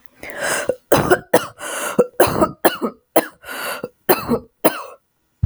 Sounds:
Cough